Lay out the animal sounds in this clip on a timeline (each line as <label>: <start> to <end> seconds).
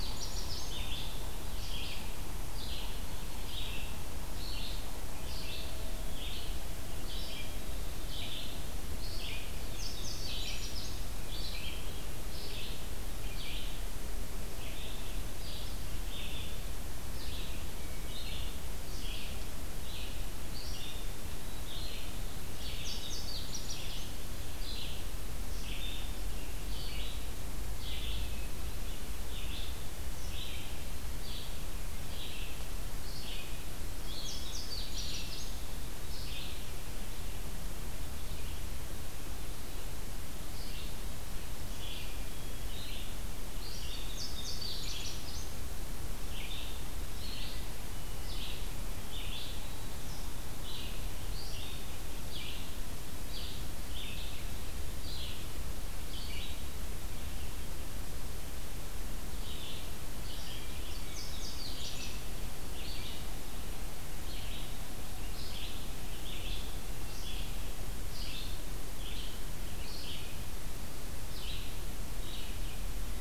Indigo Bunting (Passerina cyanea): 0.0 to 0.9 seconds
Red-eyed Vireo (Vireo olivaceus): 0.0 to 21.0 seconds
Indigo Bunting (Passerina cyanea): 9.5 to 11.0 seconds
Red-eyed Vireo (Vireo olivaceus): 21.4 to 73.2 seconds
Indigo Bunting (Passerina cyanea): 22.3 to 24.1 seconds
Indigo Bunting (Passerina cyanea): 34.0 to 35.7 seconds
Hermit Thrush (Catharus guttatus): 41.7 to 42.8 seconds
Indigo Bunting (Passerina cyanea): 43.9 to 45.6 seconds
Indigo Bunting (Passerina cyanea): 60.8 to 62.3 seconds